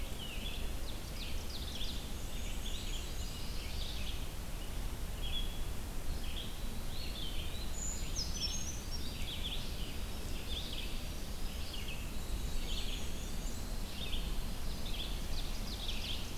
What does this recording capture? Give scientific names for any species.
Vireo olivaceus, Seiurus aurocapilla, Mniotilta varia, Setophaga coronata, Contopus virens, Certhia americana, Troglodytes hiemalis